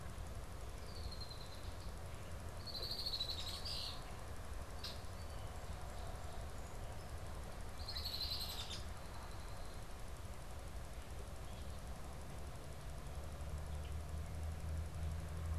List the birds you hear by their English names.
Red-winged Blackbird